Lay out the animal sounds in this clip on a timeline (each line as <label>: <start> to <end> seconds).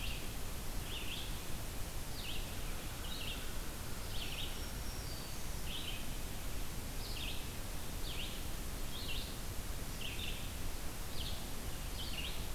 Red-eyed Vireo (Vireo olivaceus): 0.0 to 12.5 seconds
Black-throated Green Warbler (Setophaga virens): 4.1 to 5.7 seconds